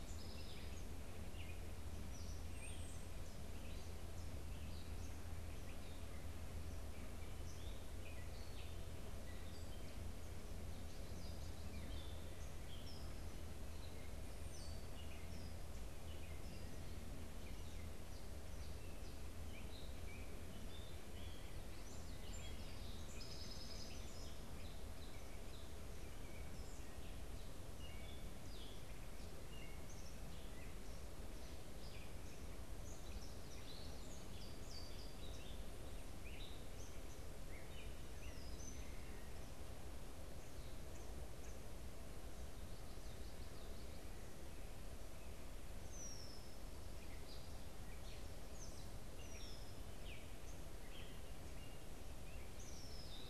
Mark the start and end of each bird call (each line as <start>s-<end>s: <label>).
0.0s-1.1s: Song Sparrow (Melospiza melodia)
0.0s-6.0s: Gray Catbird (Dumetella carolinensis)
6.5s-53.3s: Gray Catbird (Dumetella carolinensis)
21.5s-22.5s: Common Yellowthroat (Geothlypis trichas)
23.0s-25.0s: Song Sparrow (Melospiza melodia)
40.7s-41.8s: Eastern Kingbird (Tyrannus tyrannus)
45.7s-46.6s: Red-winged Blackbird (Agelaius phoeniceus)
49.2s-49.9s: Red-winged Blackbird (Agelaius phoeniceus)
52.4s-53.3s: Red-winged Blackbird (Agelaius phoeniceus)